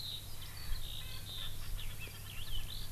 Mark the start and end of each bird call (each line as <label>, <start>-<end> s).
Eurasian Skylark (Alauda arvensis), 0.0-2.9 s
Erckel's Francolin (Pternistis erckelii), 0.4-2.9 s